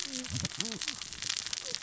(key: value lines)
label: biophony, cascading saw
recorder: SoundTrap 600 or HydroMoth